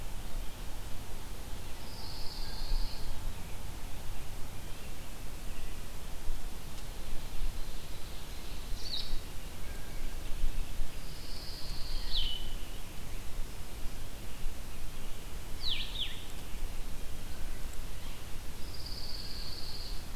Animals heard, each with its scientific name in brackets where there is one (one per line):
Blue Jay (Cyanocitta cristata)
Ovenbird (Seiurus aurocapilla)
Pine Warbler (Setophaga pinus)
American Robin (Turdus migratorius)
Blue-headed Vireo (Vireo solitarius)